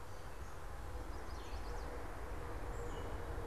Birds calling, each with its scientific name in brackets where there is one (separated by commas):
Chestnut-sided Warbler (Setophaga pensylvanica), Gray Catbird (Dumetella carolinensis), Black-capped Chickadee (Poecile atricapillus)